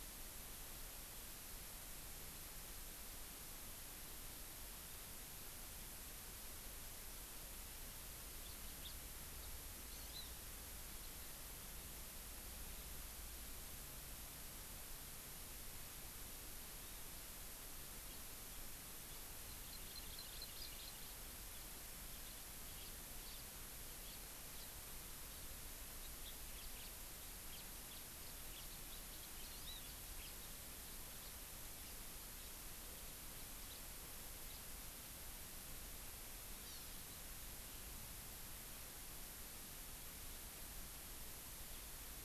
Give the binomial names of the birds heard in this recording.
Haemorhous mexicanus, Chlorodrepanis virens